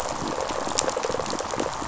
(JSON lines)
{"label": "biophony", "recorder": "SoundTrap 500"}
{"label": "biophony, rattle response", "recorder": "SoundTrap 500"}